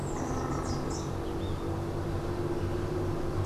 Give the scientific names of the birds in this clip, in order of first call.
Pitangus sulphuratus